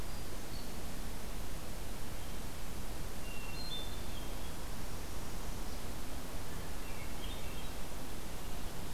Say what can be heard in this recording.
Hermit Thrush, Northern Parula